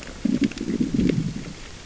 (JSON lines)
{"label": "biophony, growl", "recorder": "SoundTrap 600 or HydroMoth"}